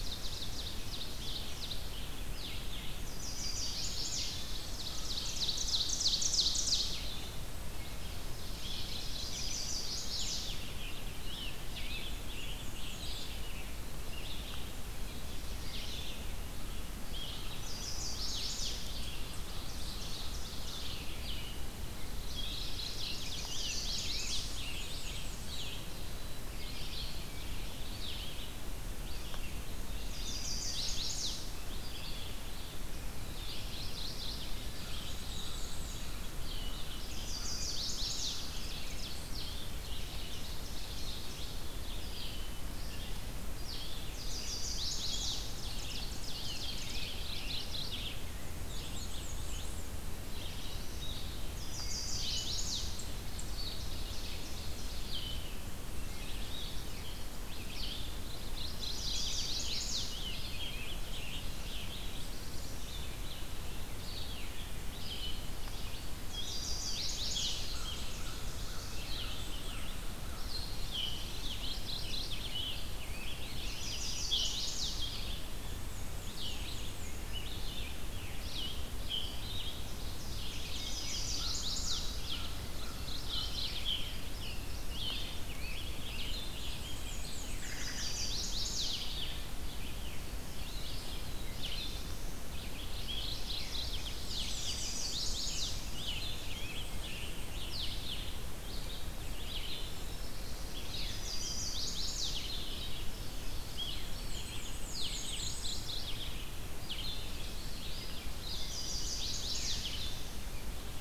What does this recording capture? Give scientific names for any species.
Seiurus aurocapilla, Vireo olivaceus, Setophaga pensylvanica, Geothlypis philadelphia, Piranga olivacea, Mniotilta varia, Setophaga caerulescens, Poecile atricapillus, Corvus brachyrhynchos